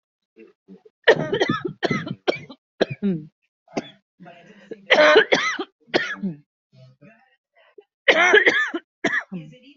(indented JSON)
{
  "expert_labels": [
    {
      "quality": "ok",
      "cough_type": "dry",
      "dyspnea": false,
      "wheezing": false,
      "stridor": true,
      "choking": false,
      "congestion": false,
      "nothing": false,
      "diagnosis": "COVID-19",
      "severity": "mild"
    }
  ],
  "age": 34,
  "gender": "female",
  "respiratory_condition": false,
  "fever_muscle_pain": false,
  "status": "symptomatic"
}